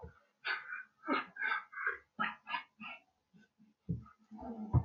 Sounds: Sniff